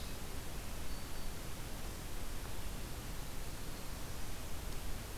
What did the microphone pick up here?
Black-throated Green Warbler